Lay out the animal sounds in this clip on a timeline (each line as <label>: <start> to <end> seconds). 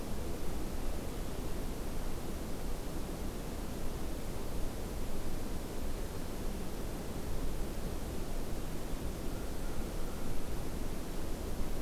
American Crow (Corvus brachyrhynchos): 9.2 to 10.6 seconds